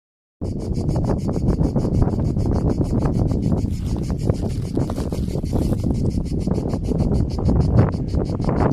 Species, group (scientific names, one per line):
Cicada orni
Cicadidae